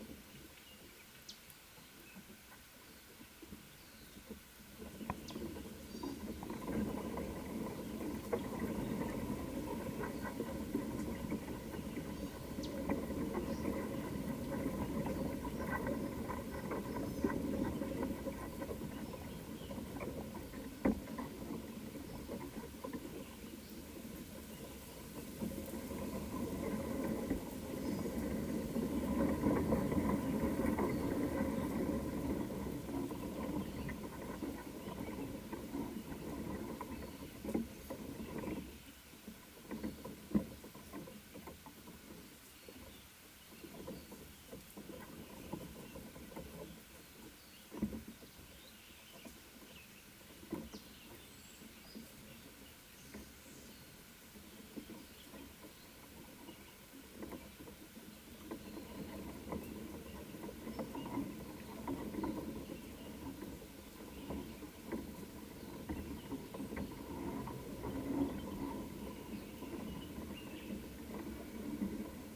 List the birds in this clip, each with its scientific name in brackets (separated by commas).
Gray-backed Camaroptera (Camaroptera brevicaudata)